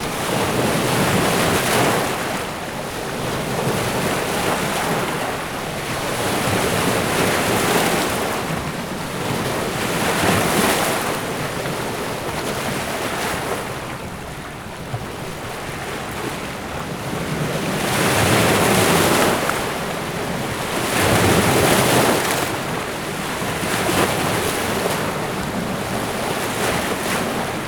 Is someone taking a bath?
no